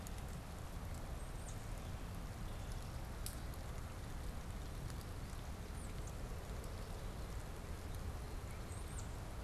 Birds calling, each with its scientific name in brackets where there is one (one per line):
Tufted Titmouse (Baeolophus bicolor)